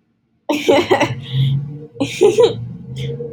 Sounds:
Laughter